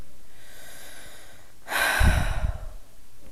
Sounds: Sigh